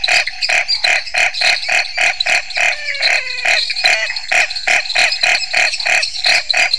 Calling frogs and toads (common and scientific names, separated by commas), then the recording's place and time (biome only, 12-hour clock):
dwarf tree frog (Dendropsophus nanus), Scinax fuscovarius, menwig frog (Physalaemus albonotatus)
Cerrado, 7:30pm